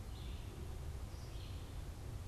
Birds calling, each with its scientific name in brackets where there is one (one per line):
Red-eyed Vireo (Vireo olivaceus)